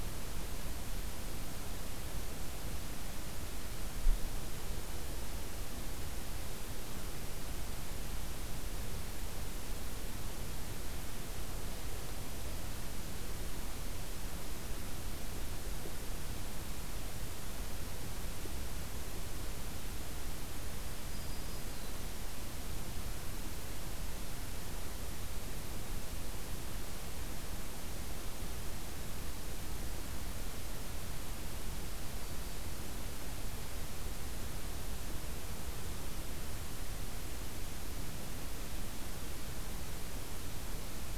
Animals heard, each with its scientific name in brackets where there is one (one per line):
Black-throated Green Warbler (Setophaga virens)